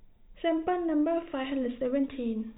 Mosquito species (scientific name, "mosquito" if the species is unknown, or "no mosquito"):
no mosquito